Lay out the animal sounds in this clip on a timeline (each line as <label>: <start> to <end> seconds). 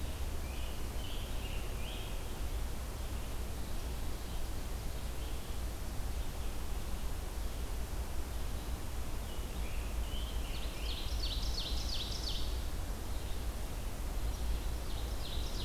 Scarlet Tanager (Piranga olivacea): 0.0 to 2.4 seconds
Red-eyed Vireo (Vireo olivaceus): 0.0 to 4.0 seconds
Red-eyed Vireo (Vireo olivaceus): 4.8 to 14.8 seconds
Scarlet Tanager (Piranga olivacea): 9.0 to 11.1 seconds
Ovenbird (Seiurus aurocapilla): 10.3 to 12.6 seconds
Ovenbird (Seiurus aurocapilla): 14.3 to 15.6 seconds